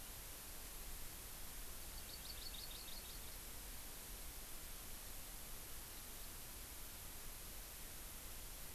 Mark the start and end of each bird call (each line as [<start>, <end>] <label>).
[1.77, 3.37] Hawaii Amakihi (Chlorodrepanis virens)